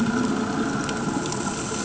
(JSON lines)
{"label": "anthrophony, boat engine", "recorder": "HydroMoth"}